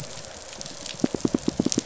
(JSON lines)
{"label": "biophony, pulse", "recorder": "SoundTrap 500"}